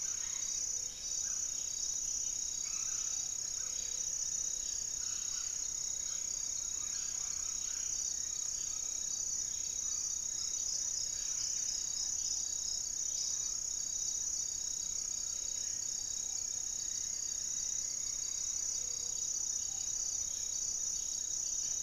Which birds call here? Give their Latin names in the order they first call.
Leptotila rufaxilla, Trogon ramonianus, Myrmelastes hyperythrus, Turdus hauxwelli, Cantorchilus leucotis, Patagioenas subvinacea